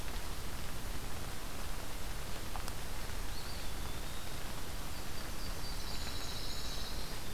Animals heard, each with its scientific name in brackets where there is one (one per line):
Pine Warbler (Setophaga pinus)
Brown Creeper (Certhia americana)
Yellow-rumped Warbler (Setophaga coronata)
Eastern Wood-Pewee (Contopus virens)